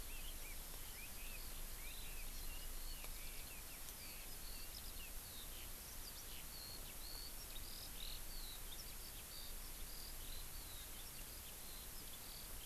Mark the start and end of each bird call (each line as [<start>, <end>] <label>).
[0.00, 2.66] Red-billed Leiothrix (Leiothrix lutea)
[0.00, 12.65] Eurasian Skylark (Alauda arvensis)
[2.26, 2.46] Hawaii Amakihi (Chlorodrepanis virens)